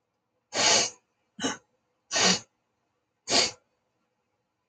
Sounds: Sniff